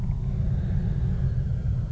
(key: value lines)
label: anthrophony, boat engine
recorder: SoundTrap 300